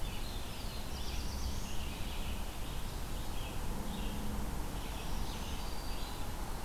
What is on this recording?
Red-eyed Vireo, Black-throated Blue Warbler, Black-throated Green Warbler